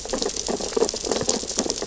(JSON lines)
{"label": "biophony, sea urchins (Echinidae)", "recorder": "SoundTrap 600 or HydroMoth"}